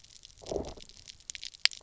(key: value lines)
label: biophony, low growl
recorder: SoundTrap 300